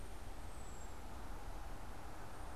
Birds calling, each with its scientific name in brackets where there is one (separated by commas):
American Robin (Turdus migratorius)